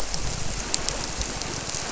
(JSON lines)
{"label": "biophony", "recorder": "SoundTrap 300"}